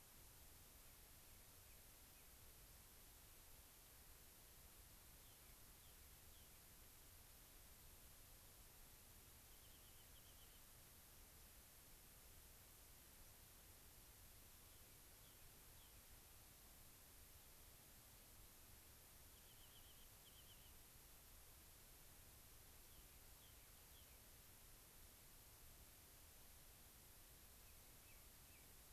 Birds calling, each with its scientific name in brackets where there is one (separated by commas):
unidentified bird, Rock Wren (Salpinctes obsoletus), White-crowned Sparrow (Zonotrichia leucophrys)